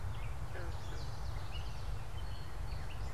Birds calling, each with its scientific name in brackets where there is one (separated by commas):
Common Yellowthroat (Geothlypis trichas), Gray Catbird (Dumetella carolinensis)